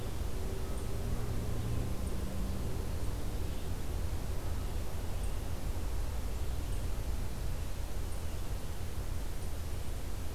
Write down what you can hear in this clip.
forest ambience